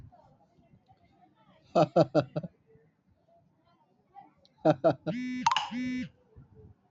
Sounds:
Laughter